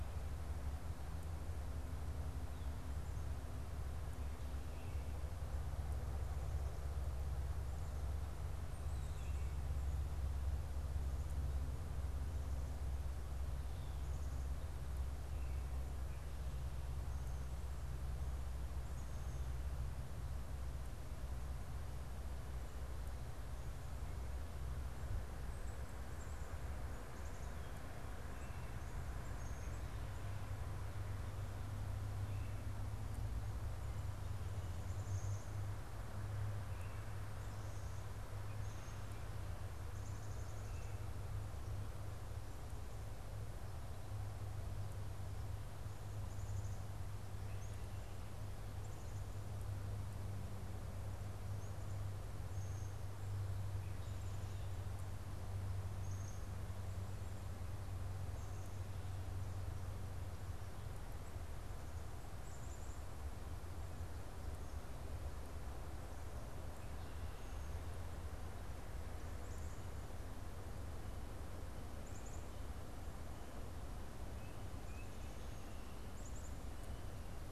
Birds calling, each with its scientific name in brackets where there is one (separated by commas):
Tufted Titmouse (Baeolophus bicolor), Black-capped Chickadee (Poecile atricapillus)